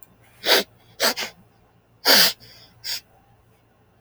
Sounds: Sniff